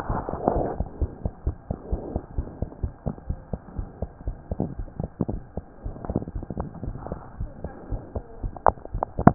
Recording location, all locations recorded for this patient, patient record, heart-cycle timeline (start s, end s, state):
pulmonary valve (PV)
aortic valve (AV)+pulmonary valve (PV)+tricuspid valve (TV)+mitral valve (MV)
#Age: Child
#Sex: Male
#Height: 75.0 cm
#Weight: 10.1 kg
#Pregnancy status: False
#Murmur: Absent
#Murmur locations: nan
#Most audible location: nan
#Systolic murmur timing: nan
#Systolic murmur shape: nan
#Systolic murmur grading: nan
#Systolic murmur pitch: nan
#Systolic murmur quality: nan
#Diastolic murmur timing: nan
#Diastolic murmur shape: nan
#Diastolic murmur grading: nan
#Diastolic murmur pitch: nan
#Diastolic murmur quality: nan
#Outcome: Abnormal
#Campaign: 2015 screening campaign
0.00	1.00	unannotated
1.00	1.12	S1
1.12	1.22	systole
1.22	1.32	S2
1.32	1.44	diastole
1.44	1.58	S1
1.58	1.68	systole
1.68	1.78	S2
1.78	1.91	diastole
1.91	2.01	S1
2.01	2.12	systole
2.12	2.22	S2
2.22	2.34	diastole
2.34	2.48	S1
2.48	2.58	systole
2.58	2.68	S2
2.68	2.80	diastole
2.80	2.91	S1
2.91	3.05	systole
3.05	3.14	S2
3.14	3.28	diastole
3.28	3.37	S1
3.37	3.51	systole
3.51	3.60	S2
3.60	3.76	diastole
3.76	3.90	S1
3.90	4.00	systole
4.00	4.10	S2
4.10	4.26	diastole
4.26	4.36	S1
4.36	9.34	unannotated